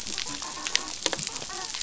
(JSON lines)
{"label": "biophony, dolphin", "recorder": "SoundTrap 500"}